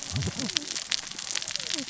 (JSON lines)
{"label": "biophony, cascading saw", "recorder": "SoundTrap 600 or HydroMoth"}